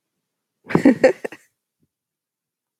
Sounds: Laughter